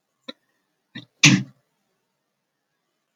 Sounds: Sneeze